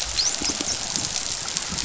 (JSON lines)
{"label": "biophony, dolphin", "recorder": "SoundTrap 500"}